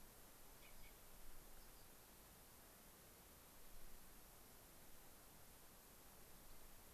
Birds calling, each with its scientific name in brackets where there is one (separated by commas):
Rock Wren (Salpinctes obsoletus)